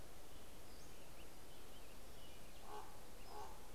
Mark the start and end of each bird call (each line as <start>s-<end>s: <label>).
0.0s-3.7s: American Robin (Turdus migratorius)
0.7s-1.4s: Pacific-slope Flycatcher (Empidonax difficilis)
2.1s-3.7s: Common Raven (Corvus corax)
3.2s-3.7s: Pacific-slope Flycatcher (Empidonax difficilis)